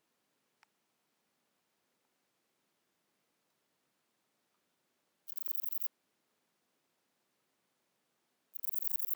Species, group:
Antaxius chopardi
Orthoptera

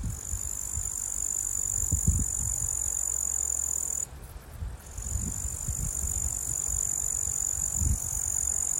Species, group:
Tettigonia cantans
Orthoptera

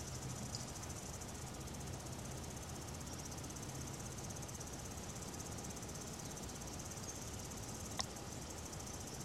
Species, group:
Tettigettalna argentata
Cicadidae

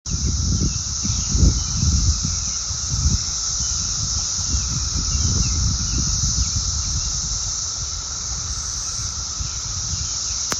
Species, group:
Magicicada cassini
Cicadidae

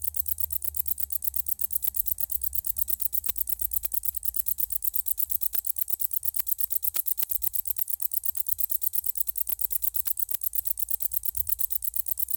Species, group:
Decticus verrucivorus
Orthoptera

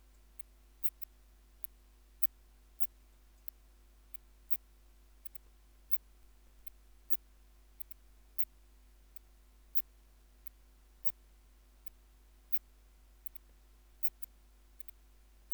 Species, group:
Phaneroptera falcata
Orthoptera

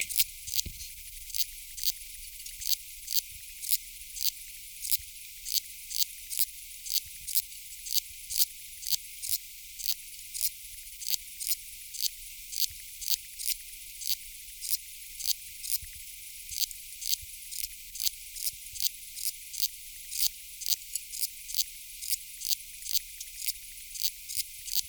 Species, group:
Tessellana tessellata
Orthoptera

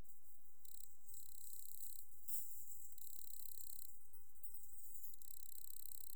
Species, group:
Nemobius sylvestris
Orthoptera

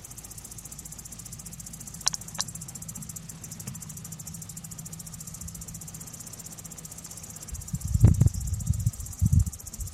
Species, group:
Tettigettalna argentata
Cicadidae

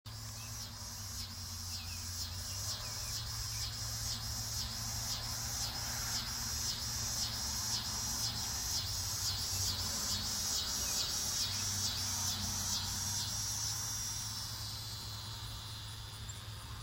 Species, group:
Neotibicen pruinosus
Cicadidae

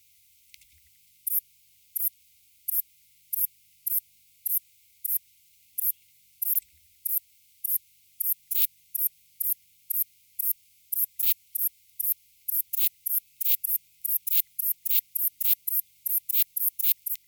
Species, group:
Ephippiger diurnus
Orthoptera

